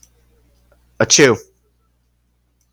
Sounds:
Sneeze